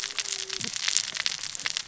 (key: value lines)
label: biophony, cascading saw
recorder: SoundTrap 600 or HydroMoth